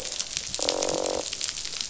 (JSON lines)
{"label": "biophony, croak", "recorder": "SoundTrap 500"}